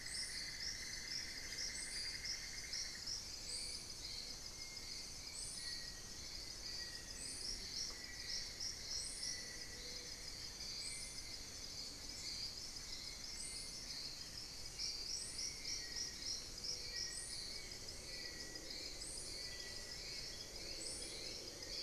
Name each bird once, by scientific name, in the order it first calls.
Dendrexetastes rufigula, Crypturellus soui, unidentified bird, Myrmotherula menetriesii